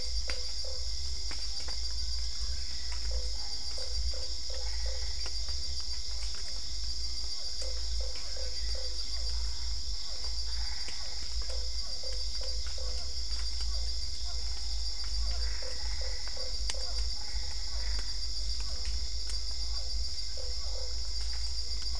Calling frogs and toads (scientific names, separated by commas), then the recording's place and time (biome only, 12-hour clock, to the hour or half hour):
Boana lundii, Dendropsophus cruzi, Physalaemus cuvieri, Boana albopunctata
Cerrado, 8pm